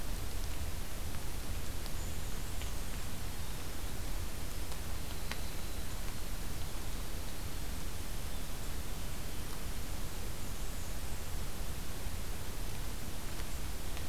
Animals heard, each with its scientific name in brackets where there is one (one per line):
Black-and-white Warbler (Mniotilta varia)
Winter Wren (Troglodytes hiemalis)